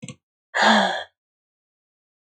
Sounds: Sigh